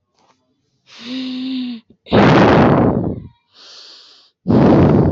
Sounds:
Sigh